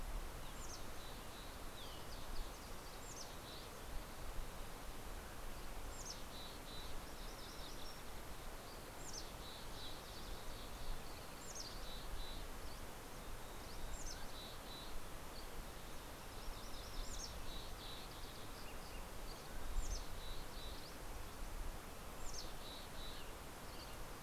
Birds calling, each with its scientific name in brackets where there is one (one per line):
Green-tailed Towhee (Pipilo chlorurus)
Dusky Flycatcher (Empidonax oberholseri)
Mountain Quail (Oreortyx pictus)
MacGillivray's Warbler (Geothlypis tolmiei)
Mountain Chickadee (Poecile gambeli)